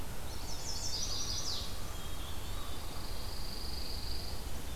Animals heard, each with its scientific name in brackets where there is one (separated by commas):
Hermit Thrush (Catharus guttatus), Pine Warbler (Setophaga pinus), Eastern Wood-Pewee (Contopus virens), Chestnut-sided Warbler (Setophaga pensylvanica)